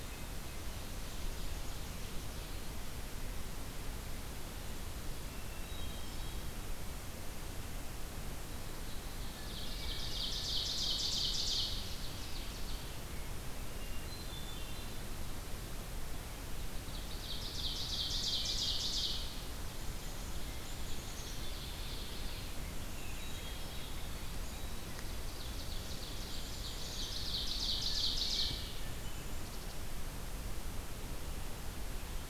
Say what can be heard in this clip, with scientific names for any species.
Seiurus aurocapilla, Poecile atricapillus, Catharus guttatus, Pheucticus ludovicianus